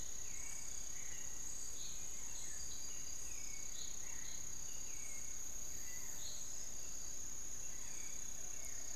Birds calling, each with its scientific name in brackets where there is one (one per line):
unidentified bird
Barred Forest-Falcon (Micrastur ruficollis)
Hauxwell's Thrush (Turdus hauxwelli)